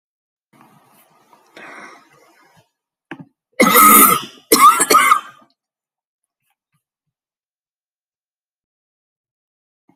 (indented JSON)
{
  "expert_labels": [
    {
      "quality": "good",
      "cough_type": "dry",
      "dyspnea": false,
      "wheezing": true,
      "stridor": false,
      "choking": false,
      "congestion": false,
      "nothing": false,
      "diagnosis": "obstructive lung disease",
      "severity": "mild"
    }
  ],
  "age": 37,
  "gender": "female",
  "respiratory_condition": false,
  "fever_muscle_pain": false,
  "status": "symptomatic"
}